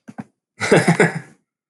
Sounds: Laughter